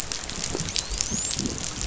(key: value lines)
label: biophony, dolphin
recorder: SoundTrap 500